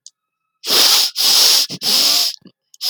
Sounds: Sniff